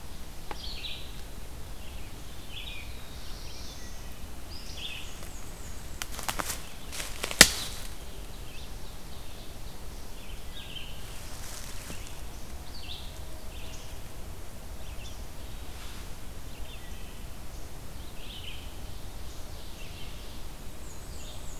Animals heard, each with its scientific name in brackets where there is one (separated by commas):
Black-throated Blue Warbler (Setophaga caerulescens), Red-eyed Vireo (Vireo olivaceus), Ovenbird (Seiurus aurocapilla), Black-and-white Warbler (Mniotilta varia), Wood Thrush (Hylocichla mustelina)